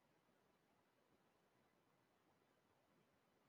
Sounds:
Sigh